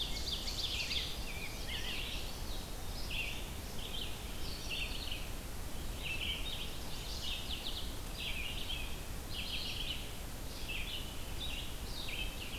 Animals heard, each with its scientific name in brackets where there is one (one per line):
Red-eyed Vireo (Vireo olivaceus)
Ovenbird (Seiurus aurocapilla)
Chestnut-sided Warbler (Setophaga pensylvanica)
Rose-breasted Grosbeak (Pheucticus ludovicianus)
Indigo Bunting (Passerina cyanea)